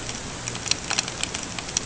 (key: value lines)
label: ambient
recorder: HydroMoth